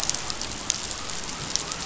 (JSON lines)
{"label": "biophony", "recorder": "SoundTrap 500"}